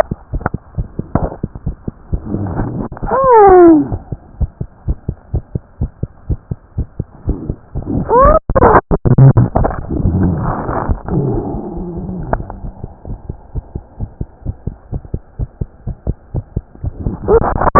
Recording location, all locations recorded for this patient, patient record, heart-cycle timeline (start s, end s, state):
tricuspid valve (TV)
aortic valve (AV)+tricuspid valve (TV)+mitral valve (MV)
#Age: Child
#Sex: Female
#Height: 78.0 cm
#Weight: 9.8 kg
#Pregnancy status: False
#Murmur: Absent
#Murmur locations: nan
#Most audible location: nan
#Systolic murmur timing: nan
#Systolic murmur shape: nan
#Systolic murmur grading: nan
#Systolic murmur pitch: nan
#Systolic murmur quality: nan
#Diastolic murmur timing: nan
#Diastolic murmur shape: nan
#Diastolic murmur grading: nan
#Diastolic murmur pitch: nan
#Diastolic murmur quality: nan
#Outcome: Abnormal
#Campaign: 2015 screening campaign
0.00	13.05	unannotated
13.05	13.17	S1
13.17	13.27	systole
13.27	13.37	S2
13.37	13.53	diastole
13.53	13.62	S1
13.62	13.72	systole
13.72	13.82	S2
13.82	13.98	diastole
13.98	14.08	S1
14.08	14.18	systole
14.18	14.28	S2
14.28	14.43	diastole
14.43	14.54	S1
14.54	14.65	systole
14.65	14.74	S2
14.74	14.90	diastole
14.90	15.00	S1
15.00	15.12	systole
15.12	15.20	S2
15.20	15.37	diastole
15.37	15.47	S1
15.47	15.58	systole
15.58	15.68	S2
15.68	15.85	diastole
15.85	15.95	S1
15.95	16.06	systole
16.06	16.15	S2
16.15	16.33	diastole
16.33	16.42	S1
16.42	16.54	systole
16.54	16.64	S2
16.64	16.82	diastole
16.82	16.92	S1
16.92	17.03	systole
17.03	17.12	S2
17.12	17.79	unannotated